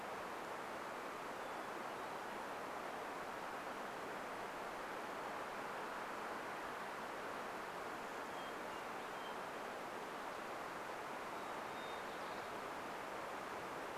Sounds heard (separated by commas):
Hermit Thrush song